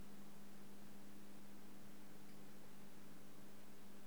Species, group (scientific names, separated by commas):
Leptophyes boscii, Orthoptera